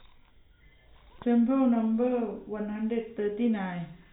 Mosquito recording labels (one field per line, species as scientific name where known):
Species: no mosquito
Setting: cup